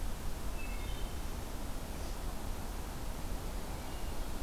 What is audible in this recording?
Wood Thrush